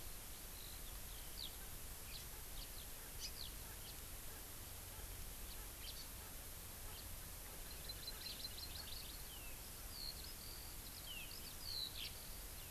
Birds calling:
Hawaii Amakihi (Chlorodrepanis virens)
House Finch (Haemorhous mexicanus)
Eurasian Skylark (Alauda arvensis)

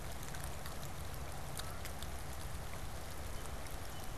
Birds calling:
Canada Goose (Branta canadensis)

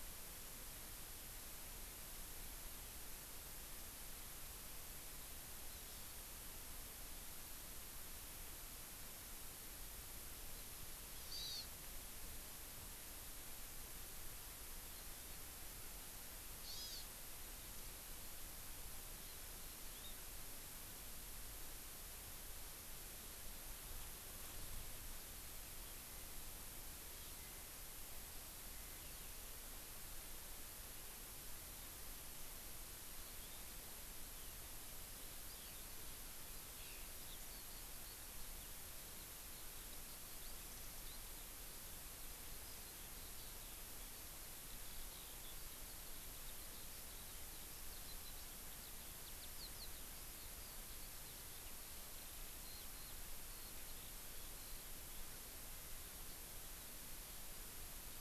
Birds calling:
Hawaii Amakihi (Chlorodrepanis virens)
Eurasian Skylark (Alauda arvensis)

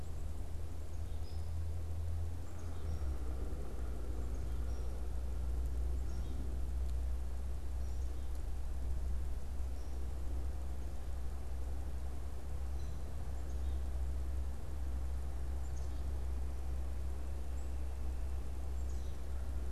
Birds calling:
American Crow (Corvus brachyrhynchos)
unidentified bird
Black-capped Chickadee (Poecile atricapillus)

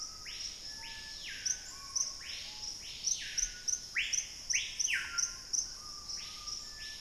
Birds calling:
Screaming Piha (Lipaugus vociferans)

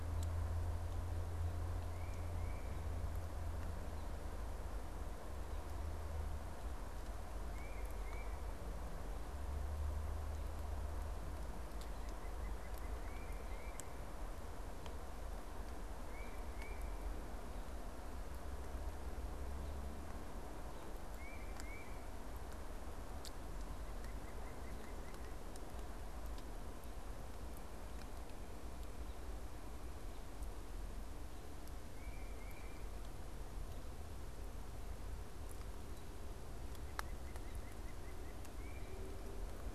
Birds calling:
Tufted Titmouse (Baeolophus bicolor)
White-breasted Nuthatch (Sitta carolinensis)

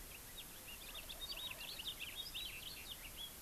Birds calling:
Wild Turkey (Meleagris gallopavo)
House Finch (Haemorhous mexicanus)

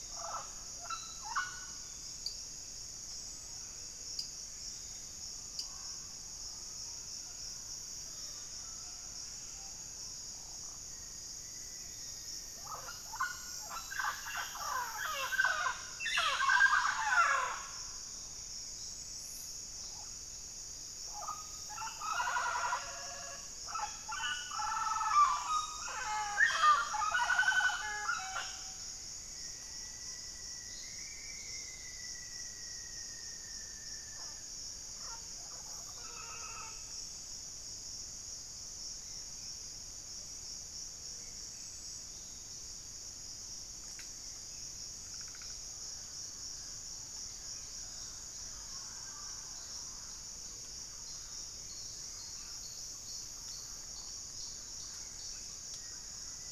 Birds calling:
White-rumped Sirystes (Sirystes albocinereus)
Black-faced Antthrush (Formicarius analis)
Rufous-fronted Antthrush (Formicarius rufifrons)
Mealy Parrot (Amazona farinosa)
Ruddy Quail-Dove (Geotrygon montana)
Thrush-like Wren (Campylorhynchus turdinus)

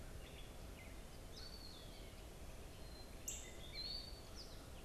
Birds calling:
Eastern Wood-Pewee (Contopus virens)
Gray Catbird (Dumetella carolinensis)
Black-capped Chickadee (Poecile atricapillus)
Northern Cardinal (Cardinalis cardinalis)

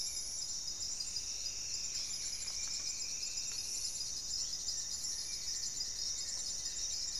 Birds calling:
Striped Woodcreeper (Xiphorhynchus obsoletus)
Goeldi's Antbird (Akletos goeldii)
Buff-breasted Wren (Cantorchilus leucotis)
Paradise Tanager (Tangara chilensis)

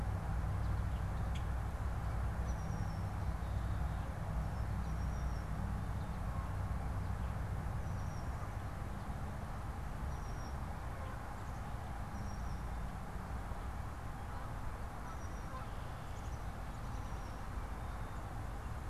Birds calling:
Red-winged Blackbird (Agelaius phoeniceus)
Black-capped Chickadee (Poecile atricapillus)
American Robin (Turdus migratorius)

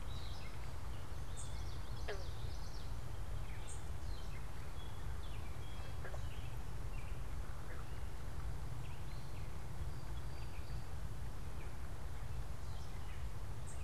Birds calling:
Common Yellowthroat (Geothlypis trichas)
Gray Catbird (Dumetella carolinensis)

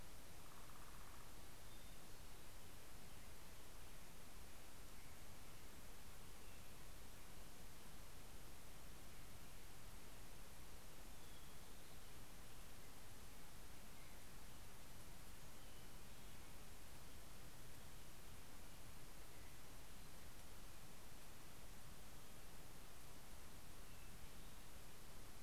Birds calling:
Northern Flicker (Colaptes auratus)
Hermit Thrush (Catharus guttatus)

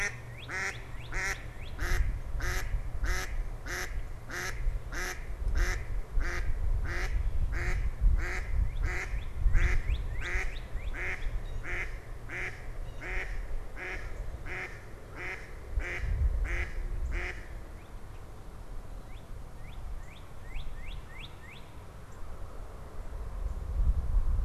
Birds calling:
Blue Jay (Cyanocitta cristata)
Mallard (Anas platyrhynchos)
Northern Cardinal (Cardinalis cardinalis)

